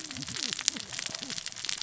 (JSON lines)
{"label": "biophony, cascading saw", "recorder": "SoundTrap 600 or HydroMoth"}